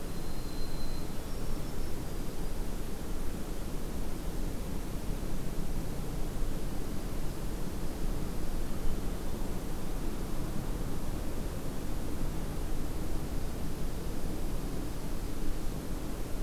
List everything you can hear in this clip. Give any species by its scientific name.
Zonotrichia albicollis